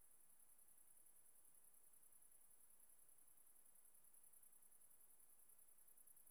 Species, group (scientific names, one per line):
Tettigonia viridissima
Orthoptera